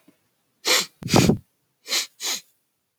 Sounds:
Sniff